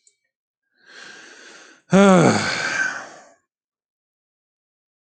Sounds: Sigh